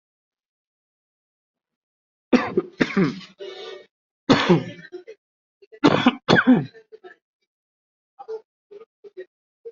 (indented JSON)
{
  "expert_labels": [
    {
      "quality": "good",
      "cough_type": "wet",
      "dyspnea": false,
      "wheezing": false,
      "stridor": false,
      "choking": false,
      "congestion": false,
      "nothing": true,
      "diagnosis": "upper respiratory tract infection",
      "severity": "mild"
    }
  ],
  "age": 41,
  "gender": "male",
  "respiratory_condition": false,
  "fever_muscle_pain": false,
  "status": "COVID-19"
}